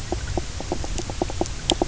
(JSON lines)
{"label": "biophony, knock croak", "recorder": "SoundTrap 300"}